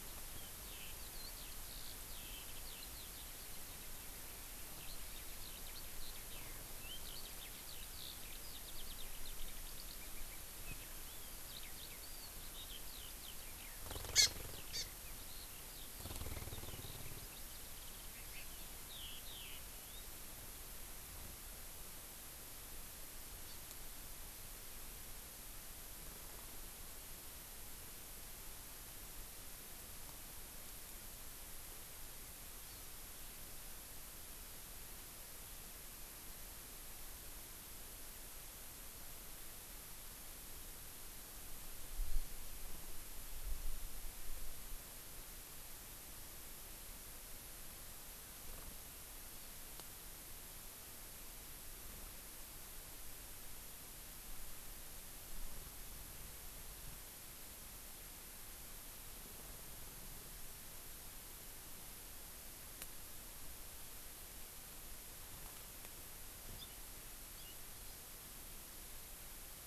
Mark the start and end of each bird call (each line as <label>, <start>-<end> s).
Eurasian Skylark (Alauda arvensis), 0.0-4.1 s
Eurasian Skylark (Alauda arvensis), 4.6-20.0 s
Hawaii Amakihi (Chlorodrepanis virens), 14.1-14.3 s
Hawaii Amakihi (Chlorodrepanis virens), 14.7-14.8 s
Hawaii Amakihi (Chlorodrepanis virens), 23.4-23.6 s
Hawaii Amakihi (Chlorodrepanis virens), 32.6-32.9 s
Hawaii Amakihi (Chlorodrepanis virens), 49.3-49.5 s
Hawaii Amakihi (Chlorodrepanis virens), 66.5-66.8 s
Hawaii Amakihi (Chlorodrepanis virens), 67.3-67.6 s